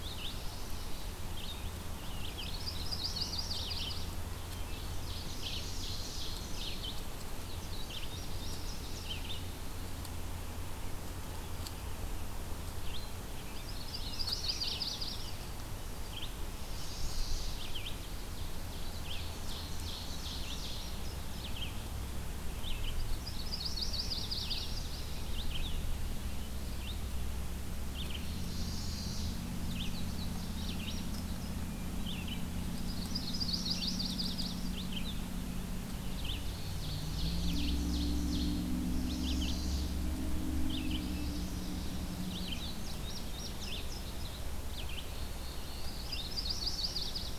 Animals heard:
Chestnut-sided Warbler (Setophaga pensylvanica), Ovenbird (Seiurus aurocapilla), Yellow-rumped Warbler (Setophaga coronata), unidentified call, Indigo Bunting (Passerina cyanea), Red-eyed Vireo (Vireo olivaceus), Black-throated Blue Warbler (Setophaga caerulescens)

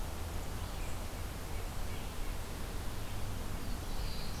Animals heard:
Red-eyed Vireo (Vireo olivaceus), Black-throated Blue Warbler (Setophaga caerulescens)

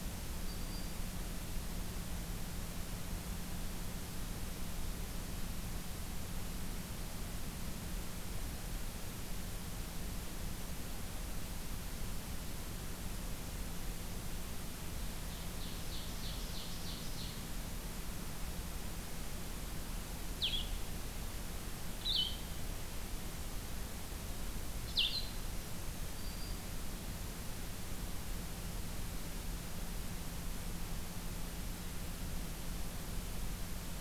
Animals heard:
Black-throated Green Warbler (Setophaga virens), Blue-headed Vireo (Vireo solitarius), Ovenbird (Seiurus aurocapilla)

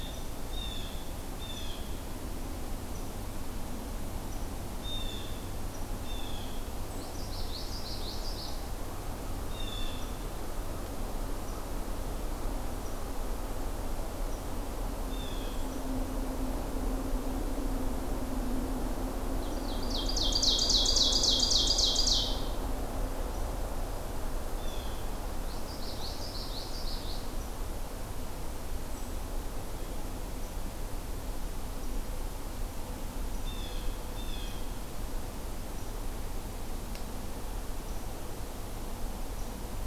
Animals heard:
Common Yellowthroat (Geothlypis trichas), Ovenbird (Seiurus aurocapilla), Blue Jay (Cyanocitta cristata)

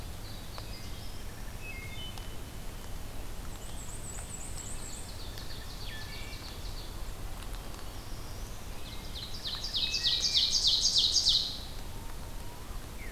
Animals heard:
Ovenbird (Seiurus aurocapilla), Wood Thrush (Hylocichla mustelina), Black-throated Blue Warbler (Setophaga caerulescens), Magnolia Warbler (Setophaga magnolia), Black-and-white Warbler (Mniotilta varia)

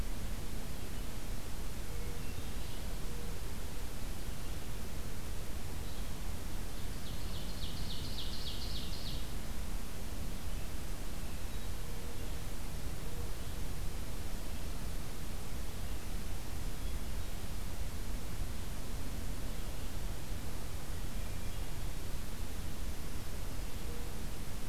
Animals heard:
Ovenbird (Seiurus aurocapilla), Hermit Thrush (Catharus guttatus), Yellow-bellied Flycatcher (Empidonax flaviventris)

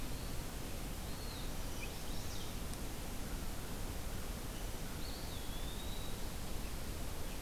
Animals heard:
Chestnut-sided Warbler (Setophaga pensylvanica), Eastern Wood-Pewee (Contopus virens)

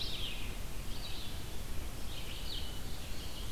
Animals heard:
Blue-headed Vireo (Vireo solitarius), Red-eyed Vireo (Vireo olivaceus), Mourning Warbler (Geothlypis philadelphia)

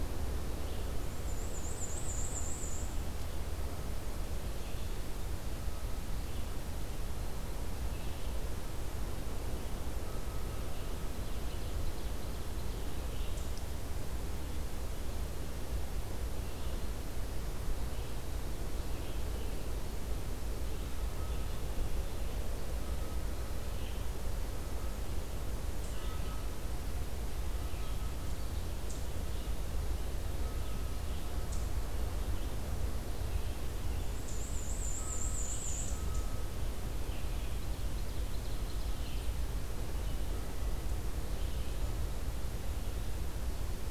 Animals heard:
Black-and-white Warbler (Mniotilta varia), Red-eyed Vireo (Vireo olivaceus), Ovenbird (Seiurus aurocapilla)

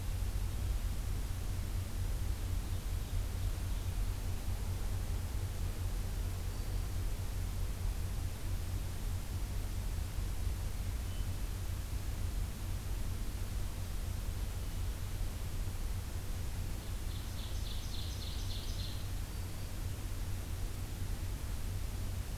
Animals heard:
Hermit Thrush (Catharus guttatus), Black-throated Green Warbler (Setophaga virens), Ovenbird (Seiurus aurocapilla)

